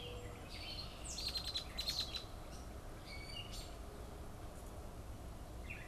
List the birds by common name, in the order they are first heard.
Mourning Dove, Gray Catbird, Red-winged Blackbird